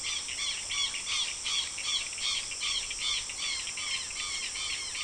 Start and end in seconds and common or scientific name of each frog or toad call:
none